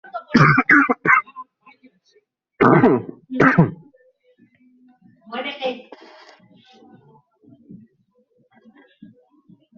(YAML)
expert_labels:
- quality: ok
  cough_type: dry
  dyspnea: false
  wheezing: false
  stridor: false
  choking: false
  congestion: false
  nothing: true
  diagnosis: COVID-19
  severity: mild
age: 34
gender: male
respiratory_condition: false
fever_muscle_pain: true
status: symptomatic